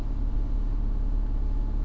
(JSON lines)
{"label": "anthrophony, boat engine", "recorder": "SoundTrap 300"}